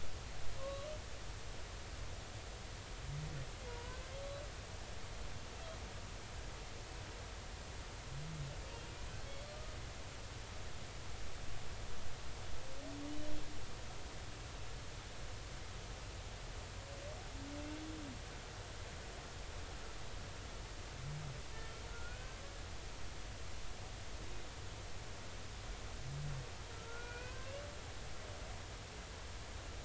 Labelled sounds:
0.6	0.9	humpback whale, 1.0 to 1.2 kHz
3.7	4.0	humpback whale, 0.90 to 1.1 kHz
21.9	22.4	humpback whale, 1.3 to 1.6 kHz
26.7	27.5	humpback whale, 0.99 to 2.6 kHz

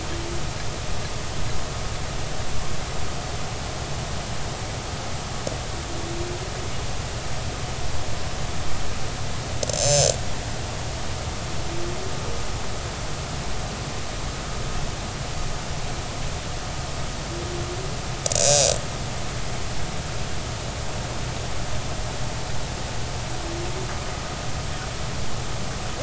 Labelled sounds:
9.6	10.1	killer whale, northern resident, 5.1 to 7.4 kHz
18.4	19.0	killer whale, northern resident, 2.4 to 6.5 kHz

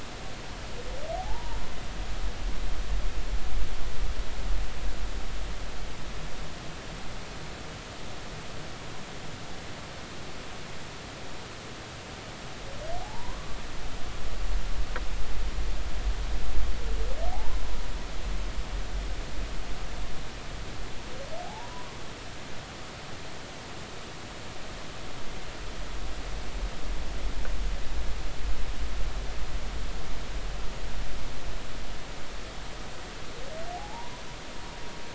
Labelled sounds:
1.1	1.6	humpback whale, 0.80 to 0.99 kHz
13.0	13.5	humpback whale, 0.80 to 1.2 kHz
17.3	17.6	humpback whale, 0.80 to 1.1 kHz
21.4	21.9	humpback whale, 0.80 to 1.0 kHz
33.8	34.2	humpback whale, 0.80 to 1.1 kHz

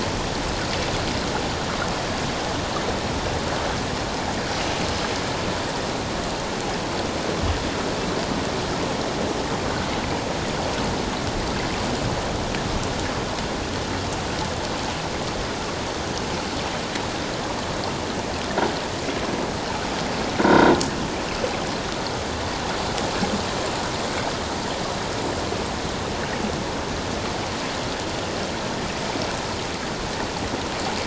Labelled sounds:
20.4	20.7	croaking sound likely from a nearby submerged object, 1.3 to 3.8 kHz

